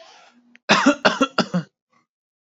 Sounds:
Cough